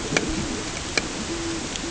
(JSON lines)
{"label": "ambient", "recorder": "HydroMoth"}